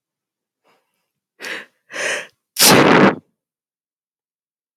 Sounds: Sneeze